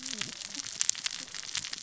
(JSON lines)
{"label": "biophony, cascading saw", "recorder": "SoundTrap 600 or HydroMoth"}